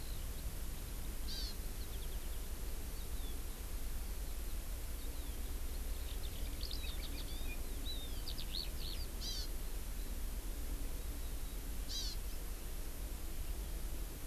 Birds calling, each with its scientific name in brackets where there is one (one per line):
Eurasian Skylark (Alauda arvensis)
Hawaii Amakihi (Chlorodrepanis virens)
Warbling White-eye (Zosterops japonicus)